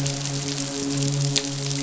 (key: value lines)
label: biophony, midshipman
recorder: SoundTrap 500